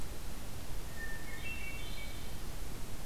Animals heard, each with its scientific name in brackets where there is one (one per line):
Hermit Thrush (Catharus guttatus)